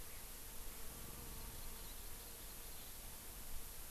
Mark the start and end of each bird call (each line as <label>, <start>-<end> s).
Hawaii Amakihi (Chlorodrepanis virens), 1.3-2.9 s